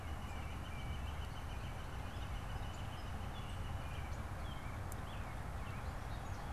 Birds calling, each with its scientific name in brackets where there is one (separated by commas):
American Robin (Turdus migratorius), Northern Flicker (Colaptes auratus), Song Sparrow (Melospiza melodia)